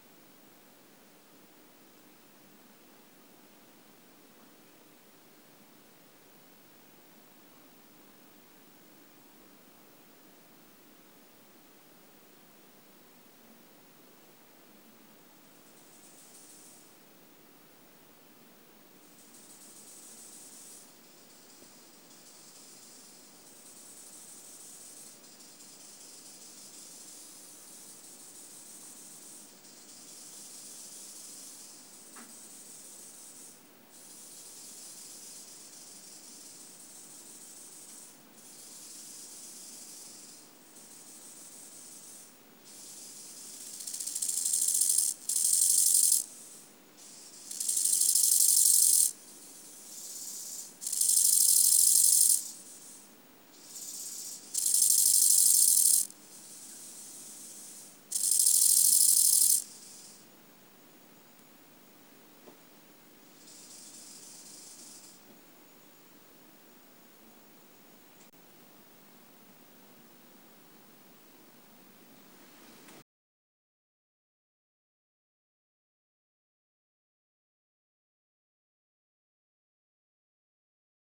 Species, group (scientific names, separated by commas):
Chorthippus eisentrauti, Orthoptera